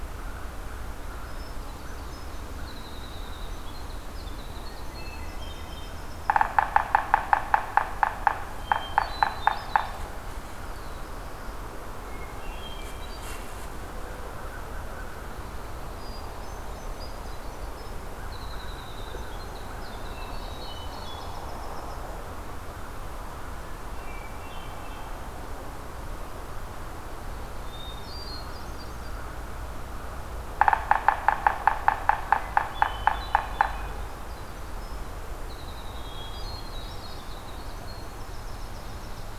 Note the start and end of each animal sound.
1.1s-2.5s: Hermit Thrush (Catharus guttatus)
1.2s-6.7s: Winter Wren (Troglodytes hiemalis)
4.8s-6.0s: Hermit Thrush (Catharus guttatus)
6.2s-10.1s: Yellow-bellied Sapsucker (Sphyrapicus varius)
8.4s-9.9s: Hermit Thrush (Catharus guttatus)
10.2s-11.6s: Black-throated Blue Warbler (Setophaga caerulescens)
12.0s-13.6s: Hermit Thrush (Catharus guttatus)
15.8s-22.3s: Winter Wren (Troglodytes hiemalis)
17.9s-22.5s: American Crow (Corvus brachyrhynchos)
23.7s-25.2s: Hermit Thrush (Catharus guttatus)
27.5s-29.2s: Hermit Thrush (Catharus guttatus)
30.4s-33.9s: Yellow-bellied Sapsucker (Sphyrapicus varius)
32.6s-39.4s: Winter Wren (Troglodytes hiemalis)
32.6s-33.9s: Hermit Thrush (Catharus guttatus)
35.9s-37.3s: Hermit Thrush (Catharus guttatus)

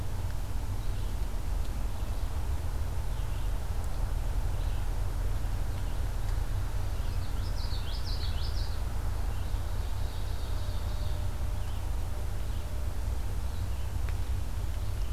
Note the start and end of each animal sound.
0.0s-15.1s: Red-eyed Vireo (Vireo olivaceus)
7.0s-8.8s: Common Yellowthroat (Geothlypis trichas)
9.2s-11.3s: Ovenbird (Seiurus aurocapilla)

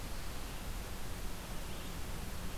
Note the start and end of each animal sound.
1.5s-2.6s: Red-eyed Vireo (Vireo olivaceus)

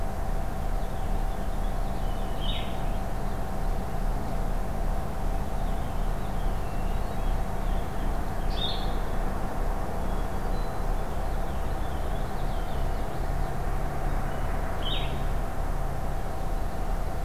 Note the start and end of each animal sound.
0.4s-2.8s: Purple Finch (Haemorhous purpureus)
2.3s-2.8s: Blue-headed Vireo (Vireo solitarius)
5.2s-8.7s: Purple Finch (Haemorhous purpureus)
6.6s-7.4s: Hermit Thrush (Catharus guttatus)
8.4s-9.0s: Blue-headed Vireo (Vireo solitarius)
9.9s-11.0s: Hermit Thrush (Catharus guttatus)
10.7s-12.8s: Purple Finch (Haemorhous purpureus)
12.6s-13.7s: Common Yellowthroat (Geothlypis trichas)
14.7s-15.2s: Blue-headed Vireo (Vireo solitarius)

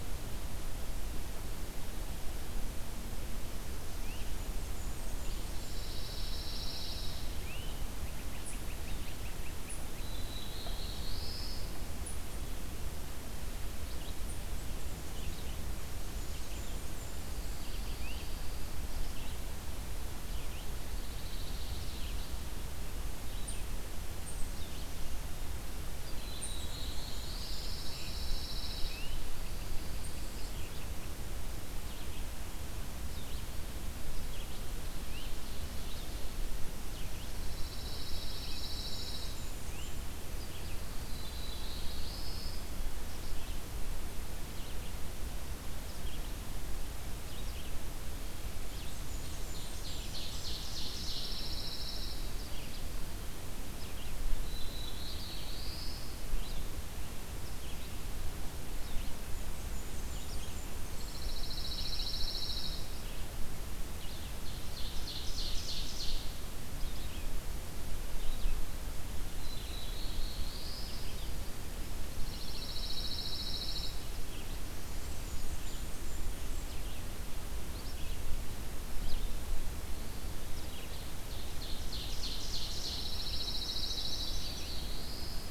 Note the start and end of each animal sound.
0.0s-44.9s: Red-eyed Vireo (Vireo olivaceus)
3.9s-4.3s: Great Crested Flycatcher (Myiarchus crinitus)
4.3s-6.0s: Blackburnian Warbler (Setophaga fusca)
5.6s-7.3s: Pine Warbler (Setophaga pinus)
7.4s-10.2s: Great Crested Flycatcher (Myiarchus crinitus)
9.8s-11.7s: Black-throated Blue Warbler (Setophaga caerulescens)
16.0s-17.7s: Blackburnian Warbler (Setophaga fusca)
17.1s-18.8s: Pine Warbler (Setophaga pinus)
17.7s-18.3s: Great Crested Flycatcher (Myiarchus crinitus)
20.9s-22.3s: Pine Warbler (Setophaga pinus)
26.0s-27.7s: Black-throated Blue Warbler (Setophaga caerulescens)
26.8s-28.2s: Blackburnian Warbler (Setophaga fusca)
27.1s-30.4s: Pine Warbler (Setophaga pinus)
27.7s-30.7s: Great Crested Flycatcher (Myiarchus crinitus)
35.0s-35.3s: Great Crested Flycatcher (Myiarchus crinitus)
37.3s-39.5s: Pine Warbler (Setophaga pinus)
38.5s-40.0s: Blackburnian Warbler (Setophaga fusca)
39.6s-40.1s: Great Crested Flycatcher (Myiarchus crinitus)
40.7s-42.7s: Black-throated Blue Warbler (Setophaga caerulescens)
45.7s-85.5s: Red-eyed Vireo (Vireo olivaceus)
48.6s-50.5s: Blackburnian Warbler (Setophaga fusca)
49.1s-51.5s: Ovenbird (Seiurus aurocapilla)
50.8s-52.4s: Pine Warbler (Setophaga pinus)
54.2s-56.1s: Black-throated Blue Warbler (Setophaga caerulescens)
59.3s-61.3s: Blackburnian Warbler (Setophaga fusca)
61.0s-63.0s: Pine Warbler (Setophaga pinus)
63.8s-66.4s: Ovenbird (Seiurus aurocapilla)
69.2s-71.1s: Black-throated Blue Warbler (Setophaga caerulescens)
72.2s-74.0s: Pine Warbler (Setophaga pinus)
74.8s-76.7s: Blackburnian Warbler (Setophaga fusca)
80.6s-83.1s: Ovenbird (Seiurus aurocapilla)
82.6s-84.4s: Pine Warbler (Setophaga pinus)
83.8s-85.5s: Black-throated Blue Warbler (Setophaga caerulescens)

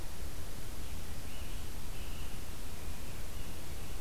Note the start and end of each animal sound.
0.8s-4.0s: Scarlet Tanager (Piranga olivacea)

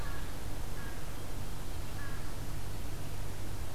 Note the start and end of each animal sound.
0.0s-3.7s: American Crow (Corvus brachyrhynchos)

